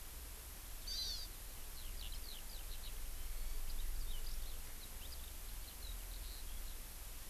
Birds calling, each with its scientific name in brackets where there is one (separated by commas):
Hawaii Amakihi (Chlorodrepanis virens), Eurasian Skylark (Alauda arvensis)